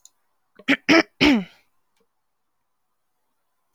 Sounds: Throat clearing